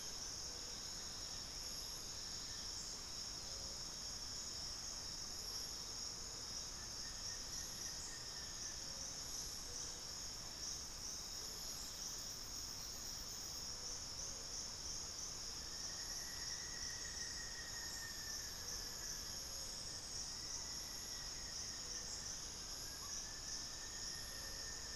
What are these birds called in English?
Plain-winged Antshrike, unidentified bird, Buff-throated Woodcreeper